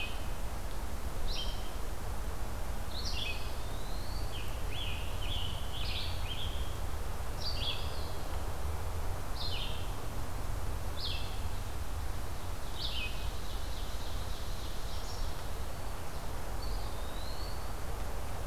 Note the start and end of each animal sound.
0.0s-18.5s: Red-eyed Vireo (Vireo olivaceus)
3.2s-4.5s: Eastern Wood-Pewee (Contopus virens)
4.2s-6.8s: Scarlet Tanager (Piranga olivacea)
7.6s-8.4s: Eastern Wood-Pewee (Contopus virens)
13.0s-15.3s: Ovenbird (Seiurus aurocapilla)
14.9s-16.0s: Eastern Wood-Pewee (Contopus virens)
16.5s-17.8s: Eastern Wood-Pewee (Contopus virens)

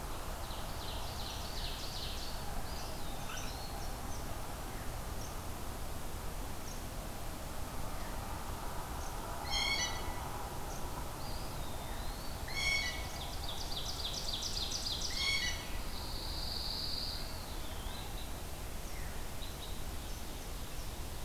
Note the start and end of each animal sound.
0.0s-2.6s: Ovenbird (Seiurus aurocapilla)
2.6s-4.0s: Eastern Wood-Pewee (Contopus virens)
9.3s-10.3s: Blue Jay (Cyanocitta cristata)
11.1s-12.4s: Eastern Wood-Pewee (Contopus virens)
12.2s-13.2s: Blue Jay (Cyanocitta cristata)
12.9s-15.2s: Ovenbird (Seiurus aurocapilla)
15.0s-15.7s: Blue Jay (Cyanocitta cristata)
15.7s-17.2s: Pine Warbler (Setophaga pinus)
17.0s-18.1s: Red-breasted Nuthatch (Sitta canadensis)
17.2s-18.1s: Eastern Wood-Pewee (Contopus virens)
18.8s-19.3s: Veery (Catharus fuscescens)

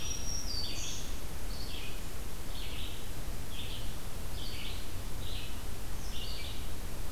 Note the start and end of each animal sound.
0.0s-1.2s: Black-throated Green Warbler (Setophaga virens)
0.0s-7.1s: Red-eyed Vireo (Vireo olivaceus)

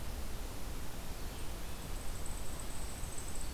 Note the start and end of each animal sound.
1.3s-3.5s: unidentified call
2.8s-3.5s: Black-throated Green Warbler (Setophaga virens)

